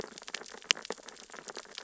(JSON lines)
{"label": "biophony, sea urchins (Echinidae)", "recorder": "SoundTrap 600 or HydroMoth"}